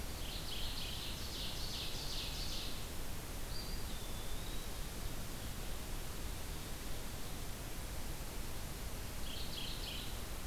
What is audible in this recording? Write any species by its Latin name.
Seiurus aurocapilla, Geothlypis philadelphia, Contopus virens